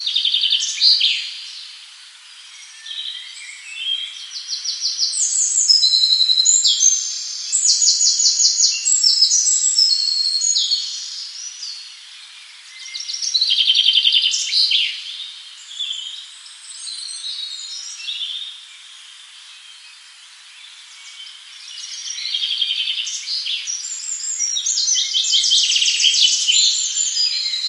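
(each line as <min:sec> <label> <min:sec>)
0:00.0 A bird tweets with a high-pitched sound. 0:01.5
0:02.8 A bird tweets with a high-pitched sound. 0:12.0
0:12.7 A bird tweets with a high-pitched sound. 0:18.7
0:21.5 A bird tweets with a high-pitched sound. 0:27.7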